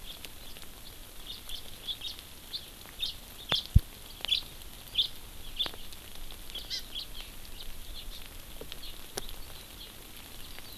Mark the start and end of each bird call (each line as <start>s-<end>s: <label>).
0.0s-0.2s: House Finch (Haemorhous mexicanus)
1.2s-1.6s: House Finch (Haemorhous mexicanus)
2.0s-2.1s: House Finch (Haemorhous mexicanus)
2.5s-2.6s: House Finch (Haemorhous mexicanus)
3.0s-3.1s: House Finch (Haemorhous mexicanus)
3.5s-3.6s: House Finch (Haemorhous mexicanus)
4.3s-4.4s: House Finch (Haemorhous mexicanus)
4.9s-5.1s: House Finch (Haemorhous mexicanus)
5.6s-5.7s: House Finch (Haemorhous mexicanus)
6.5s-6.6s: House Finch (Haemorhous mexicanus)
6.7s-6.8s: Hawaii Amakihi (Chlorodrepanis virens)
6.9s-7.0s: House Finch (Haemorhous mexicanus)
7.5s-7.6s: House Finch (Haemorhous mexicanus)
7.9s-8.2s: Hawaii Amakihi (Chlorodrepanis virens)
8.8s-8.9s: Hawaii Amakihi (Chlorodrepanis virens)
9.8s-9.9s: Hawaii Amakihi (Chlorodrepanis virens)